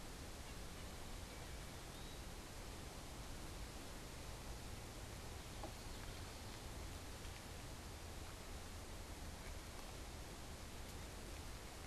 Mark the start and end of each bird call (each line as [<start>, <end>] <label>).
[0.20, 1.00] unidentified bird
[1.70, 2.40] Eastern Wood-Pewee (Contopus virens)
[5.10, 6.80] Common Yellowthroat (Geothlypis trichas)